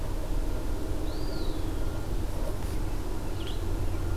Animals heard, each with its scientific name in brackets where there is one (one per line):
Black-throated Green Warbler (Setophaga virens)
Eastern Wood-Pewee (Contopus virens)